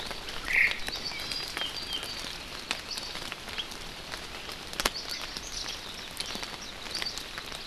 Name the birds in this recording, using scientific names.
Myadestes obscurus, Drepanis coccinea, Zosterops japonicus